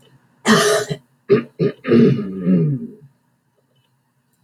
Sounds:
Throat clearing